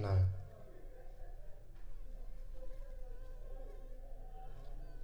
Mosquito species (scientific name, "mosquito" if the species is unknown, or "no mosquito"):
Anopheles funestus s.s.